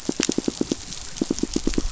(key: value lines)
label: biophony, pulse
recorder: SoundTrap 500